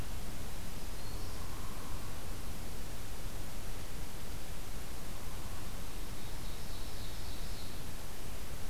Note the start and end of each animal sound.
0.6s-1.5s: Black-throated Green Warbler (Setophaga virens)
1.0s-2.2s: Hairy Woodpecker (Dryobates villosus)
5.9s-7.8s: Ovenbird (Seiurus aurocapilla)

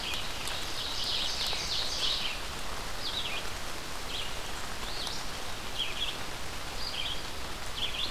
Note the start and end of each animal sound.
0.0s-8.1s: Red-eyed Vireo (Vireo olivaceus)
0.4s-2.4s: Ovenbird (Seiurus aurocapilla)

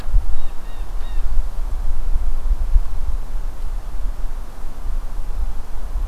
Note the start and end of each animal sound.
0.2s-1.3s: Blue Jay (Cyanocitta cristata)

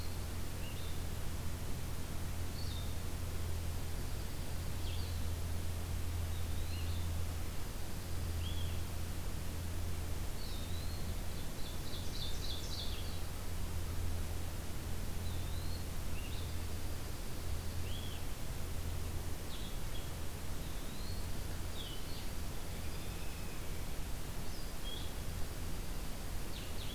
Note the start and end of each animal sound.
0.0s-26.9s: Blue-headed Vireo (Vireo solitarius)
3.7s-4.8s: Dark-eyed Junco (Junco hyemalis)
6.2s-7.0s: Eastern Wood-Pewee (Contopus virens)
10.3s-11.1s: Eastern Wood-Pewee (Contopus virens)
11.3s-13.3s: Ovenbird (Seiurus aurocapilla)
15.1s-15.9s: Eastern Wood-Pewee (Contopus virens)
16.5s-18.0s: Dark-eyed Junco (Junco hyemalis)
20.5s-21.3s: Eastern Wood-Pewee (Contopus virens)
21.3s-22.5s: Dark-eyed Junco (Junco hyemalis)
22.7s-23.6s: American Robin (Turdus migratorius)
25.0s-26.5s: Dark-eyed Junco (Junco hyemalis)

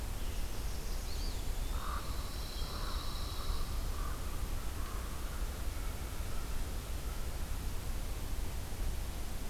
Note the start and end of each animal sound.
0.0s-1.8s: Northern Parula (Setophaga americana)
0.2s-1.7s: Eastern Wood-Pewee (Contopus virens)
1.6s-7.3s: Common Raven (Corvus corax)
1.7s-3.9s: Pine Warbler (Setophaga pinus)

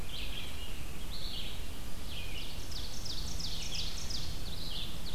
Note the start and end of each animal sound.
0.0s-5.1s: Red-eyed Vireo (Vireo olivaceus)
2.1s-5.1s: Ovenbird (Seiurus aurocapilla)

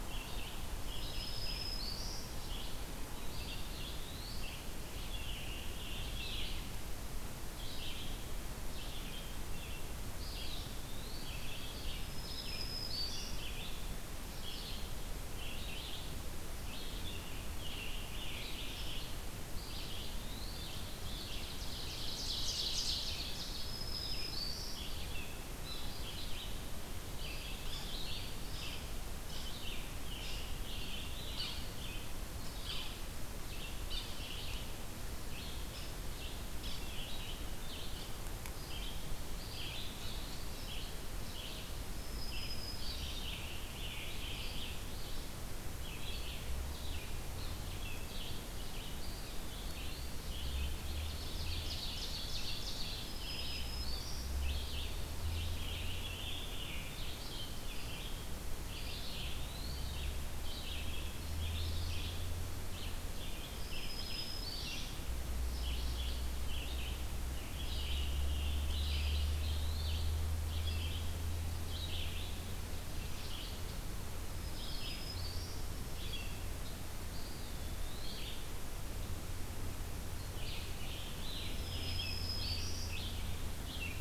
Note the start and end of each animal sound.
0.0s-84.0s: Red-eyed Vireo (Vireo olivaceus)
0.6s-2.3s: Black-throated Green Warbler (Setophaga virens)
3.2s-4.5s: Eastern Wood-Pewee (Contopus virens)
4.7s-6.8s: Scarlet Tanager (Piranga olivacea)
10.0s-11.4s: Eastern Wood-Pewee (Contopus virens)
11.4s-13.8s: Scarlet Tanager (Piranga olivacea)
11.9s-13.4s: Black-throated Green Warbler (Setophaga virens)
16.6s-19.0s: Scarlet Tanager (Piranga olivacea)
19.3s-20.8s: Eastern Wood-Pewee (Contopus virens)
20.8s-23.6s: Ovenbird (Seiurus aurocapilla)
21.0s-23.4s: Scarlet Tanager (Piranga olivacea)
23.2s-24.9s: Black-throated Green Warbler (Setophaga virens)
27.1s-28.3s: Eastern Wood-Pewee (Contopus virens)
29.4s-32.1s: Scarlet Tanager (Piranga olivacea)
31.3s-31.6s: Yellow-bellied Sapsucker (Sphyrapicus varius)
32.6s-32.8s: Yellow-bellied Sapsucker (Sphyrapicus varius)
33.9s-34.1s: Yellow-bellied Sapsucker (Sphyrapicus varius)
35.7s-35.9s: Yellow-bellied Sapsucker (Sphyrapicus varius)
39.2s-40.5s: Eastern Wood-Pewee (Contopus virens)
41.8s-43.2s: Black-throated Green Warbler (Setophaga virens)
42.9s-44.9s: Scarlet Tanager (Piranga olivacea)
48.8s-50.1s: Eastern Wood-Pewee (Contopus virens)
50.7s-53.2s: Ovenbird (Seiurus aurocapilla)
52.9s-54.4s: Black-throated Green Warbler (Setophaga virens)
55.3s-58.2s: Scarlet Tanager (Piranga olivacea)
58.5s-59.9s: Eastern Wood-Pewee (Contopus virens)
63.4s-64.8s: Black-throated Green Warbler (Setophaga virens)
67.2s-69.5s: Scarlet Tanager (Piranga olivacea)
68.9s-70.0s: Eastern Wood-Pewee (Contopus virens)
74.2s-75.6s: Black-throated Green Warbler (Setophaga virens)
77.0s-78.3s: Eastern Wood-Pewee (Contopus virens)
80.2s-82.9s: Scarlet Tanager (Piranga olivacea)
81.3s-83.0s: Black-throated Green Warbler (Setophaga virens)

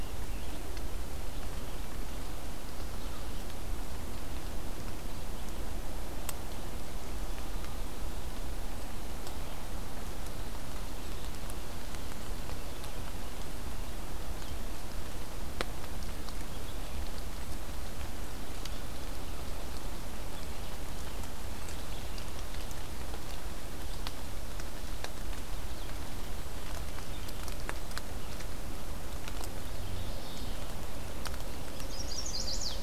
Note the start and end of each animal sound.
0.0s-0.6s: Rose-breasted Grosbeak (Pheucticus ludovicianus)
0.0s-32.8s: Red-eyed Vireo (Vireo olivaceus)
29.8s-30.9s: Mourning Warbler (Geothlypis philadelphia)
31.5s-32.8s: Chestnut-sided Warbler (Setophaga pensylvanica)

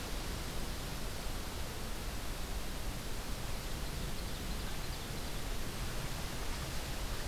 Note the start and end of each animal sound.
3.6s-5.6s: Ovenbird (Seiurus aurocapilla)

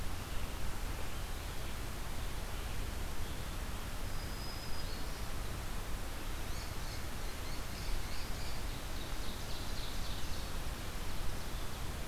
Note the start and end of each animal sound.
3.8s-5.5s: Black-throated Green Warbler (Setophaga virens)
6.0s-9.0s: unidentified call
8.7s-12.1s: Ovenbird (Seiurus aurocapilla)

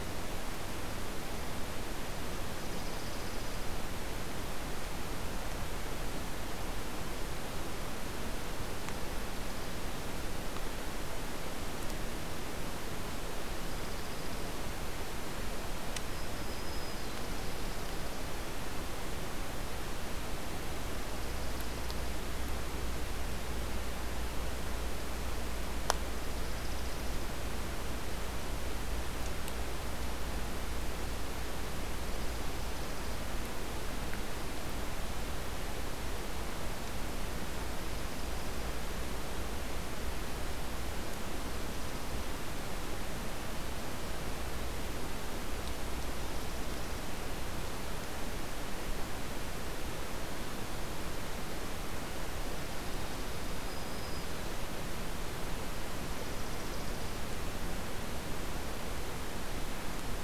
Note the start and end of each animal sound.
2.4s-3.7s: Dark-eyed Junco (Junco hyemalis)
13.3s-14.6s: Dark-eyed Junco (Junco hyemalis)
16.0s-17.3s: Black-throated Green Warbler (Setophaga virens)
16.8s-18.3s: Dark-eyed Junco (Junco hyemalis)
21.1s-22.3s: Dark-eyed Junco (Junco hyemalis)
26.0s-27.3s: Dark-eyed Junco (Junco hyemalis)
31.8s-33.3s: Dark-eyed Junco (Junco hyemalis)
46.1s-47.1s: Dark-eyed Junco (Junco hyemalis)
53.3s-54.7s: Black-throated Green Warbler (Setophaga virens)
56.0s-57.3s: Dark-eyed Junco (Junco hyemalis)

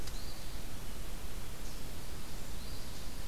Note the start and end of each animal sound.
0.0s-0.7s: Eastern Phoebe (Sayornis phoebe)
2.5s-3.3s: Eastern Phoebe (Sayornis phoebe)

